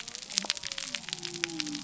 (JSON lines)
{"label": "biophony", "recorder": "SoundTrap 300"}